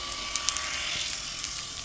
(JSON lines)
{"label": "anthrophony, boat engine", "recorder": "SoundTrap 300"}